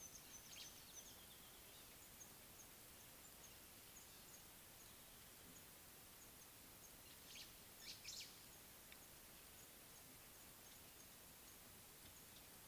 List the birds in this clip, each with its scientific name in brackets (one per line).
White-browed Sparrow-Weaver (Plocepasser mahali)
Mouse-colored Penduline-Tit (Anthoscopus musculus)